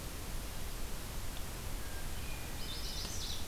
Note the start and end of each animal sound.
[1.78, 2.91] Hermit Thrush (Catharus guttatus)
[2.55, 3.45] Chestnut-sided Warbler (Setophaga pensylvanica)

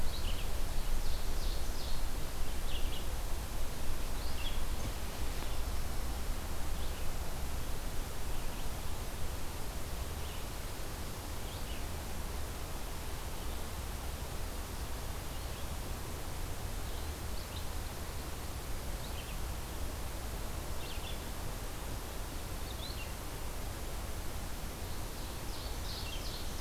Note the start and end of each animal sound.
[0.00, 26.61] Red-eyed Vireo (Vireo olivaceus)
[0.83, 2.19] Ovenbird (Seiurus aurocapilla)
[24.96, 26.61] Ovenbird (Seiurus aurocapilla)

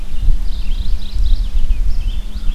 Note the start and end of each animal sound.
[0.00, 2.54] Red-eyed Vireo (Vireo olivaceus)
[0.24, 1.69] Mourning Warbler (Geothlypis philadelphia)
[2.03, 2.54] American Crow (Corvus brachyrhynchos)

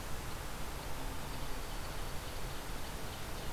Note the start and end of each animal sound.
[1.04, 2.72] Dark-eyed Junco (Junco hyemalis)
[2.10, 3.51] Ovenbird (Seiurus aurocapilla)

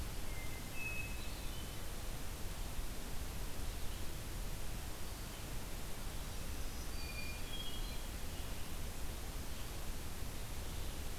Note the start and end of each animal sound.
[0.18, 2.13] Hermit Thrush (Catharus guttatus)
[6.01, 7.59] Black-throated Green Warbler (Setophaga virens)
[6.79, 8.19] Hermit Thrush (Catharus guttatus)

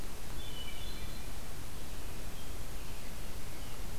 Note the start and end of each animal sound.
[0.32, 1.36] Hermit Thrush (Catharus guttatus)
[1.70, 3.83] American Robin (Turdus migratorius)

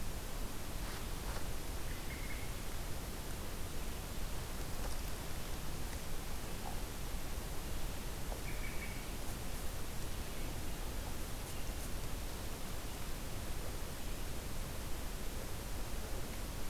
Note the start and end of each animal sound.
[1.59, 2.98] American Robin (Turdus migratorius)
[8.22, 9.05] American Robin (Turdus migratorius)

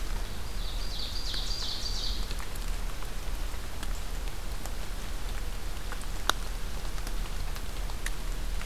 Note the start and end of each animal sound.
[0.34, 2.25] Ovenbird (Seiurus aurocapilla)

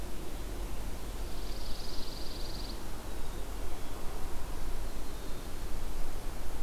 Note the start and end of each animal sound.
[1.06, 2.76] Pine Warbler (Setophaga pinus)
[2.94, 4.00] Black-capped Chickadee (Poecile atricapillus)

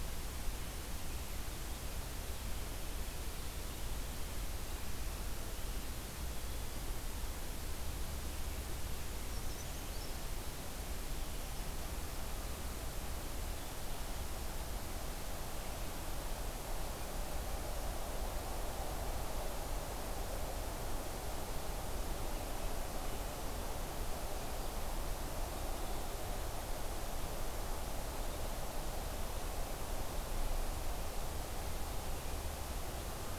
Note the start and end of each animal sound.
[9.09, 10.15] Brown Creeper (Certhia americana)

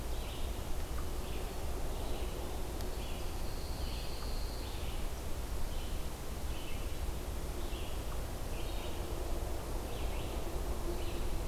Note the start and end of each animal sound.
[0.00, 11.47] Red-eyed Vireo (Vireo olivaceus)
[3.15, 4.80] Pine Warbler (Setophaga pinus)

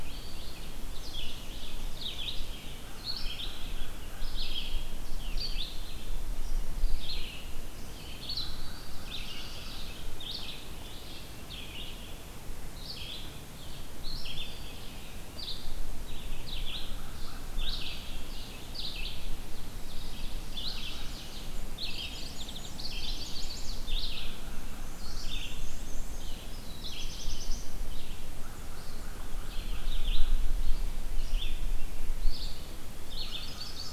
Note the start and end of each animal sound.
[0.00, 11.99] Red-eyed Vireo (Vireo olivaceus)
[2.76, 4.36] American Crow (Corvus brachyrhynchos)
[8.40, 10.19] American Crow (Corvus brachyrhynchos)
[8.42, 10.02] Black-throated Blue Warbler (Setophaga caerulescens)
[12.65, 33.92] Red-eyed Vireo (Vireo olivaceus)
[16.29, 18.58] American Crow (Corvus brachyrhynchos)
[20.32, 21.93] American Crow (Corvus brachyrhynchos)
[21.03, 22.84] Black-and-white Warbler (Mniotilta varia)
[21.74, 22.80] Mourning Warbler (Geothlypis philadelphia)
[22.57, 23.97] Chestnut-sided Warbler (Setophaga pensylvanica)
[24.74, 26.29] Black-and-white Warbler (Mniotilta varia)
[26.29, 27.91] Black-throated Blue Warbler (Setophaga caerulescens)
[28.07, 33.92] American Crow (Corvus brachyrhynchos)
[33.10, 33.92] Chestnut-sided Warbler (Setophaga pensylvanica)
[33.42, 33.92] Black-and-white Warbler (Mniotilta varia)

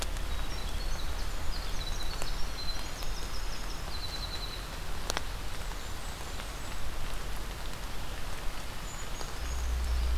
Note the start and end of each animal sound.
[0.00, 4.70] Winter Wren (Troglodytes hiemalis)
[5.40, 6.87] Blackburnian Warbler (Setophaga fusca)
[8.55, 10.18] Brown Creeper (Certhia americana)

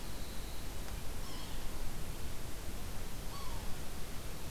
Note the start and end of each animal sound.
[1.19, 1.57] Yellow-bellied Sapsucker (Sphyrapicus varius)
[3.25, 3.70] Yellow-bellied Sapsucker (Sphyrapicus varius)

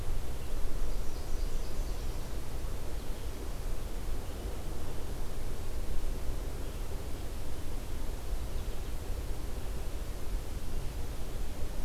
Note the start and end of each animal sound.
[0.00, 11.47] Red-eyed Vireo (Vireo olivaceus)
[0.87, 2.44] Nashville Warbler (Leiothlypis ruficapilla)

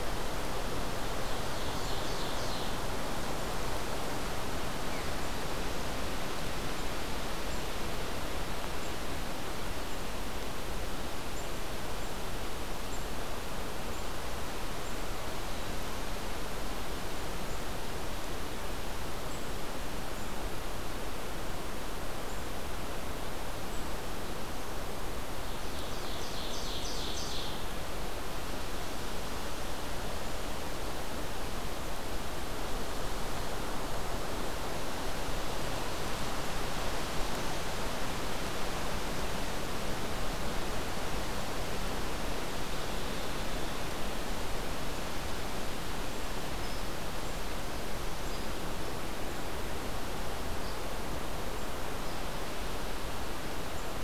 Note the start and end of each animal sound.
[0.95, 3.07] Ovenbird (Seiurus aurocapilla)
[25.30, 27.69] Ovenbird (Seiurus aurocapilla)
[46.58, 46.79] Hairy Woodpecker (Dryobates villosus)
[48.26, 48.42] Hairy Woodpecker (Dryobates villosus)
[50.61, 50.76] Hairy Woodpecker (Dryobates villosus)
[52.01, 52.11] Hairy Woodpecker (Dryobates villosus)

